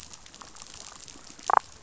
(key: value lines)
label: biophony, damselfish
recorder: SoundTrap 500